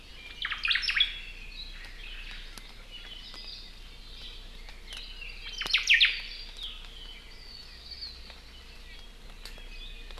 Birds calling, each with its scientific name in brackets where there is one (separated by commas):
Red-billed Leiothrix (Leiothrix lutea), Omao (Myadestes obscurus)